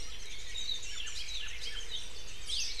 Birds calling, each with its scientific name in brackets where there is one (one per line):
Warbling White-eye (Zosterops japonicus)
Hawaii Akepa (Loxops coccineus)